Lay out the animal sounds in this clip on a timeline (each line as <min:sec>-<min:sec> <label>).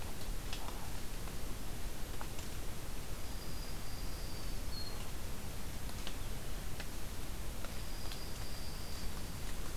0:02.9-0:04.5 Dark-eyed Junco (Junco hyemalis)
0:04.5-0:05.1 Black-throated Green Warbler (Setophaga virens)
0:07.6-0:09.1 Dark-eyed Junco (Junco hyemalis)